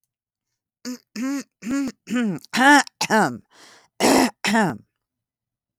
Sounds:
Throat clearing